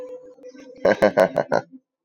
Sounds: Laughter